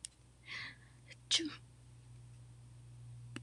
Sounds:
Sneeze